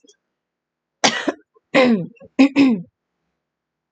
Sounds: Throat clearing